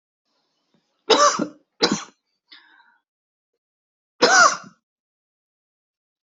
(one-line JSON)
{"expert_labels": [{"quality": "good", "cough_type": "dry", "dyspnea": false, "wheezing": false, "stridor": false, "choking": false, "congestion": false, "nothing": true, "diagnosis": "upper respiratory tract infection", "severity": "mild"}], "age": 37, "gender": "male", "respiratory_condition": false, "fever_muscle_pain": false, "status": "COVID-19"}